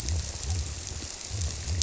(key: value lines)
label: biophony
recorder: SoundTrap 300